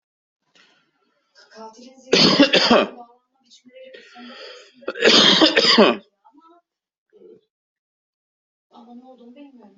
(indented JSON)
{
  "expert_labels": [
    {
      "quality": "ok",
      "cough_type": "dry",
      "dyspnea": false,
      "wheezing": false,
      "stridor": false,
      "choking": false,
      "congestion": false,
      "nothing": true,
      "diagnosis": "COVID-19",
      "severity": "mild"
    }
  ],
  "age": 42,
  "gender": "male",
  "respiratory_condition": false,
  "fever_muscle_pain": true,
  "status": "symptomatic"
}